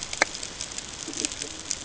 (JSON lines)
{"label": "ambient", "recorder": "HydroMoth"}